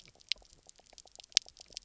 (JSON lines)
{"label": "biophony, pulse", "recorder": "SoundTrap 300"}
{"label": "biophony, knock croak", "recorder": "SoundTrap 300"}